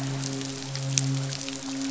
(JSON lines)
{"label": "biophony, midshipman", "recorder": "SoundTrap 500"}